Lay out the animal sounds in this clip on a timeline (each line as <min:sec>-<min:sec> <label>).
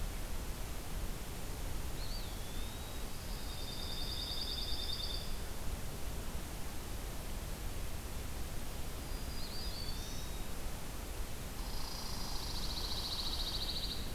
0:01.8-0:03.0 Eastern Wood-Pewee (Contopus virens)
0:03.1-0:05.5 Pine Warbler (Setophaga pinus)
0:08.6-0:10.3 Black-throated Green Warbler (Setophaga virens)
0:09.3-0:10.6 Eastern Wood-Pewee (Contopus virens)
0:11.5-0:14.1 Red Squirrel (Tamiasciurus hudsonicus)
0:12.2-0:14.0 Pine Warbler (Setophaga pinus)